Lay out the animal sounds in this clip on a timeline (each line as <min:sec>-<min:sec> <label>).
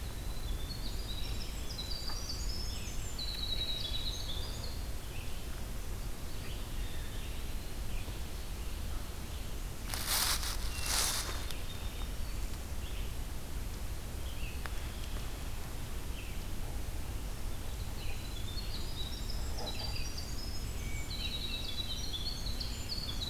0:00.0-0:04.9 Winter Wren (Troglodytes hiemalis)
0:05.0-0:23.3 Red-eyed Vireo (Vireo olivaceus)
0:06.6-0:07.9 Eastern Wood-Pewee (Contopus virens)
0:10.7-0:12.1 Hermit Thrush (Catharus guttatus)
0:17.8-0:23.3 Winter Wren (Troglodytes hiemalis)